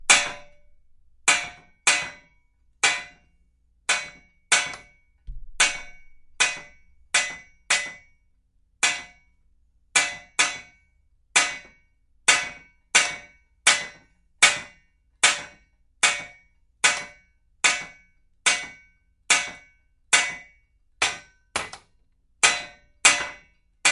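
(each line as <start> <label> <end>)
0.1 A hammer repeatedly strikes a metal pipe, creating sharp metallic clanks. 3.2
3.8 A hammer repeatedly strikes a metal pipe, creating sharp metallic clanks. 23.9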